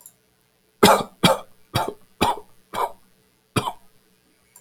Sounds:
Cough